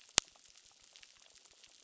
{"label": "biophony, crackle", "recorder": "SoundTrap 600"}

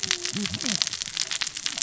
{"label": "biophony, cascading saw", "recorder": "SoundTrap 600 or HydroMoth"}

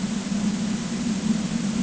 {"label": "ambient", "recorder": "HydroMoth"}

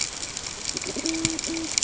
{"label": "ambient", "recorder": "HydroMoth"}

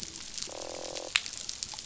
{"label": "biophony, croak", "recorder": "SoundTrap 500"}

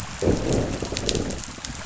{"label": "biophony, growl", "recorder": "SoundTrap 500"}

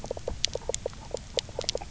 {"label": "biophony, knock croak", "recorder": "SoundTrap 300"}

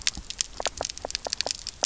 {"label": "biophony, knock croak", "recorder": "SoundTrap 300"}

